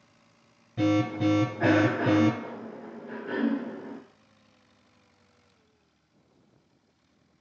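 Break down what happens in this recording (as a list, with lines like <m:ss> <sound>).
0:01 the sound of an alarm
0:01 someone coughs
a faint, unchanging noise continues about 35 decibels below the sounds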